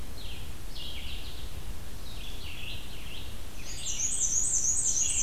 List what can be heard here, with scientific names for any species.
Vireo olivaceus, Mniotilta varia